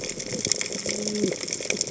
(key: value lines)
label: biophony, cascading saw
recorder: HydroMoth